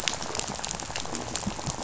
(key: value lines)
label: biophony, rattle
recorder: SoundTrap 500